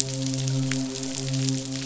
{"label": "biophony, midshipman", "recorder": "SoundTrap 500"}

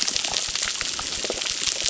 {"label": "biophony, crackle", "recorder": "SoundTrap 600"}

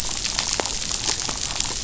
{"label": "biophony, damselfish", "recorder": "SoundTrap 500"}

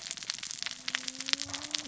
{"label": "biophony, cascading saw", "recorder": "SoundTrap 600 or HydroMoth"}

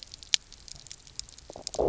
{"label": "biophony, low growl", "recorder": "SoundTrap 300"}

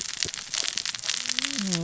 {"label": "biophony, cascading saw", "recorder": "SoundTrap 600 or HydroMoth"}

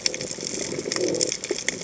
{"label": "biophony", "recorder": "HydroMoth"}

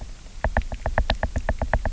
{"label": "biophony, knock", "recorder": "SoundTrap 300"}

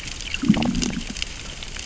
{"label": "biophony, growl", "recorder": "SoundTrap 600 or HydroMoth"}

